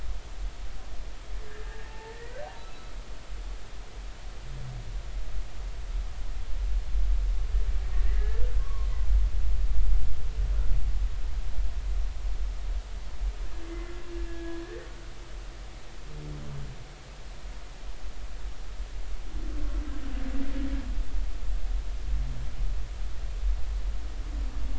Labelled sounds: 1.7	2.4	humpback whale, 0.83 to 2.0 kHz
7.9	8.9	humpback whale, 0.99 to 2.0 kHz
14.3	14.9	humpback whale, 1.6 to 1.9 kHz

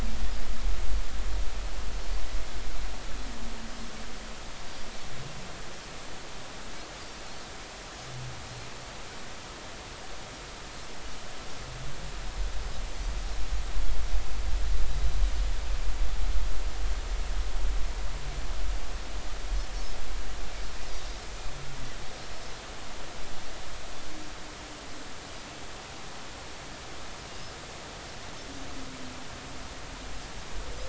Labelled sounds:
22.1	22.4	Pacific white-sided dolphin, 5.3 to 5.6 kHz

